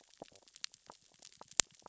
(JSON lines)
{"label": "biophony, stridulation", "recorder": "SoundTrap 600 or HydroMoth"}